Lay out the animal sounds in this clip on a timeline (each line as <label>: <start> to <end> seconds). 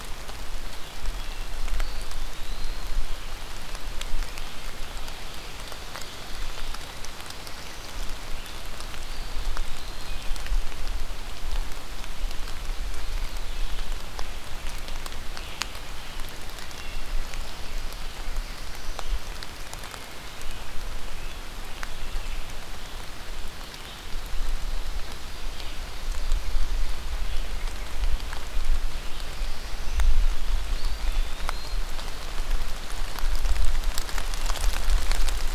Eastern Wood-Pewee (Contopus virens): 1.7 to 2.9 seconds
Eastern Wood-Pewee (Contopus virens): 8.8 to 10.2 seconds
Eastern Wood-Pewee (Contopus virens): 30.7 to 31.9 seconds